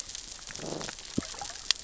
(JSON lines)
{"label": "biophony, growl", "recorder": "SoundTrap 600 or HydroMoth"}